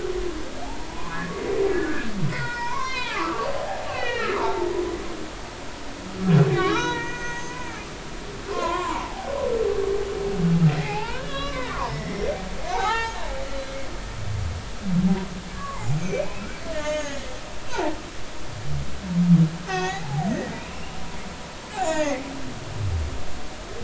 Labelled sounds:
0.9	1.4	humpback whale, 0.93 to 1.2 kHz
1.7	3.5	humpback whale, 0.80 to 5.5 kHz
3.9	4.7	humpback whale, 0.83 to 4.5 kHz
6.5	7.6	humpback whale, 0.86 to 6.4 kHz
8.5	9.3	humpback whale, 0.80 to 2.2 kHz
10.7	12.3	humpback whale, 0.80 to 5.7 kHz
12.7	13.7	humpback whale, 0.80 to 7.1 kHz
15.5	17.3	humpback whale, 0.80 to 6.9 kHz
17.7	17.9	humpback whale, 0.80 to 1.1 kHz
19.7	21.0	humpback whale, 0.80 to 6.9 kHz
21.8	22.2	humpback whale, 0.80 to 7.1 kHz

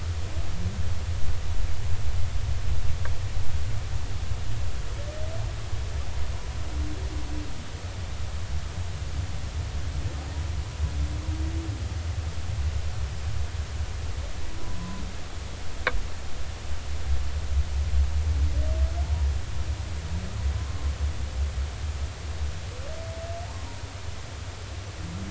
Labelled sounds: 14.6	15.0	humpback whale, 0.96 to 1.1 kHz
20.6	20.9	humpback whale, 0.99 to 1.2 kHz

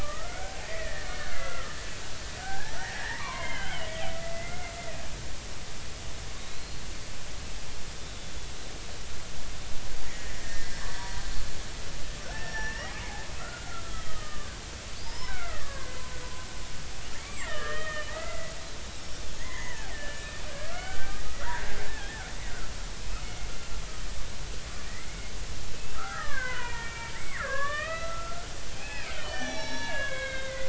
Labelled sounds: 0.0	1.8	killer whale, Bigg's (transient), 0.80 to 2.2 kHz
2.4	4.7	killer whale, Bigg's (transient), 0.80 to 3.3 kHz
6.4	6.8	killer whale, Bigg's (transient), 3.7 to 4.4 kHz
10.0	11.1	killer whale, Bigg's (transient), 1.6 to 2.1 kHz
12.3	14.5	killer whale, Bigg's (transient), 1.1 to 5.7 kHz
15.0	16.5	killer whale, Bigg's (transient), 0.86 to 5.4 kHz
17.2	21.8	killer whale, Bigg's (transient), 0.80 to 5.8 kHz
23.2	23.5	killer whale, Bigg's (transient), 2.1 to 2.2 kHz
24.9	25.3	killer whale, Bigg's (transient), 1.8 to 2.3 kHz
25.8	28.5	killer whale, Bigg's (transient), 0.80 to 3.6 kHz
28.8	30.6	killer whale, Bigg's (transient), 0.80 to 6.0 kHz

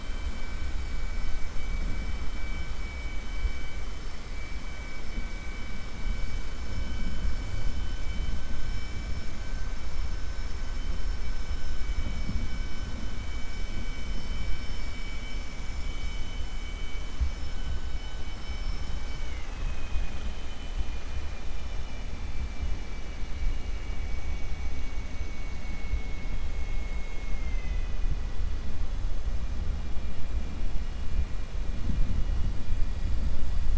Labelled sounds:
19.1	20.5	vessel noise, 1.1 to 3.8 kHz
20.8	22.1	vessel noise, 1.8 to 3.6 kHz
25.1	28.3	vessel noise, 2.0 to 3.6 kHz

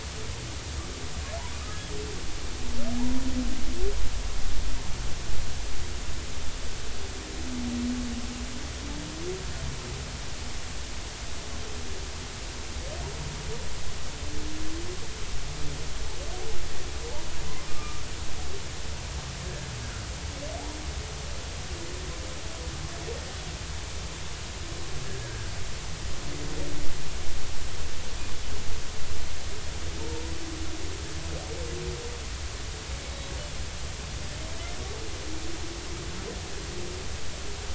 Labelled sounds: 3.0	3.2	humpback whale, 0.80 to 0.99 kHz
17.7	18.0	humpback whale, 1.2 to 1.3 kHz
19.8	20.1	humpback whale, 1.2 to 1.7 kHz
25.2	25.5	humpback whale, 1.4 to 1.7 kHz

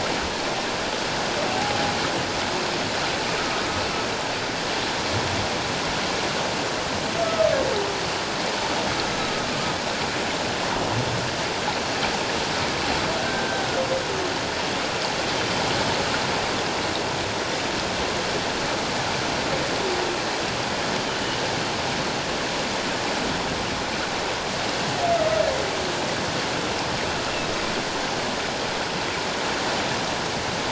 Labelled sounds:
7.2	7.5	humpback whale, 1.2 to 1.3 kHz
13.2	13.6	humpback whale, 1.5 to 1.6 kHz

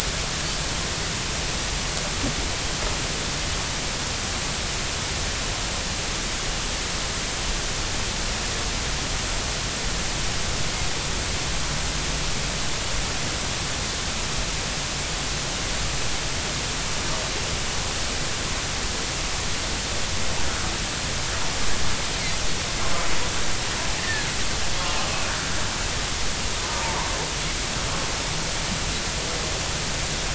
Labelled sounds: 24.0	24.3	Pacific white-sided dolphin, 1.6 to 2.0 kHz

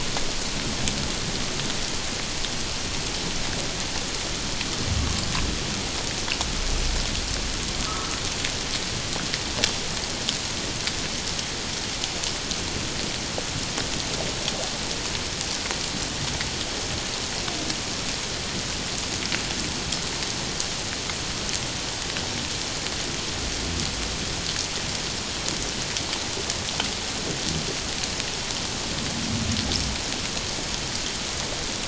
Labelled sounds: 7.9	8.2	humpback whale, 1.2 to 1.4 kHz

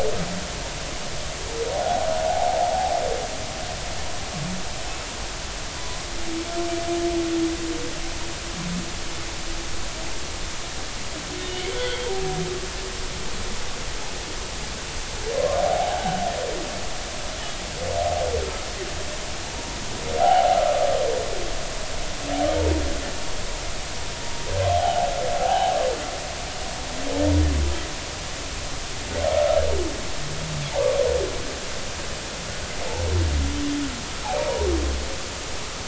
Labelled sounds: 1.7	2.1	humpback whale, 0.80 to 0.86 kHz
5.8	6.1	humpback whale, 0.96 to 1.1 kHz
11.7	12.1	humpback whale, 3.0 to 3.6 kHz
15.6	16.2	humpback whale, 0.80 to 3.1 kHz
19.5	20.6	humpback whale, 0.80 to 1.0 kHz
24.8	25.1	humpback whale, 0.80 to 0.90 kHz
25.4	25.7	humpback whale, 0.80 to 0.96 kHz
34.4	34.7	humpback whale, 0.90 to 0.99 kHz

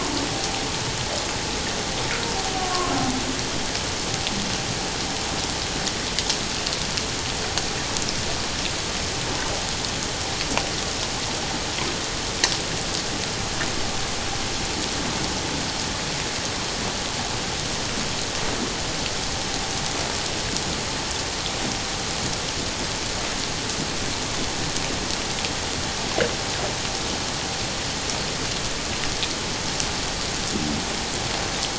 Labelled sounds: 2.6	2.9	humpback whale, 1.0 to 1.2 kHz

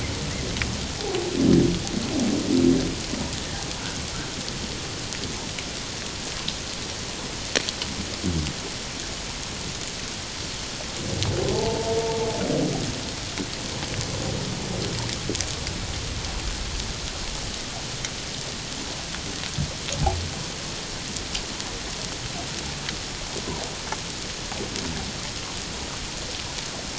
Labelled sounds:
11.5	12.0	humpback whale, 0.81 to 0.97 kHz

